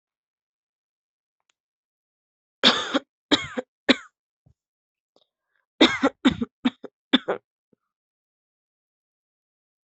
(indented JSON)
{
  "expert_labels": [
    {
      "quality": "good",
      "cough_type": "dry",
      "dyspnea": false,
      "wheezing": false,
      "stridor": false,
      "choking": false,
      "congestion": true,
      "nothing": false,
      "diagnosis": "upper respiratory tract infection",
      "severity": "mild"
    }
  ],
  "age": 28,
  "gender": "female",
  "respiratory_condition": false,
  "fever_muscle_pain": false,
  "status": "healthy"
}